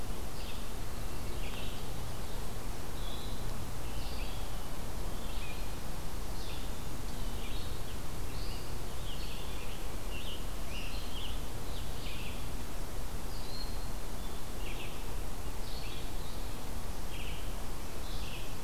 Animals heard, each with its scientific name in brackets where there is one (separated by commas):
Scarlet Tanager (Piranga olivacea), Red-eyed Vireo (Vireo olivaceus)